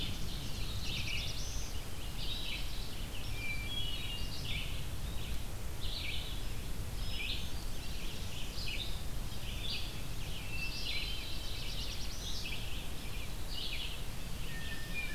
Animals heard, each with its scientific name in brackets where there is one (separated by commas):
Red-eyed Vireo (Vireo olivaceus), Hermit Thrush (Catharus guttatus), Black-throated Blue Warbler (Setophaga caerulescens), Northern Parula (Setophaga americana)